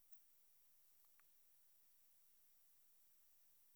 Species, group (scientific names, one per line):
Helicocercus triguttatus
Orthoptera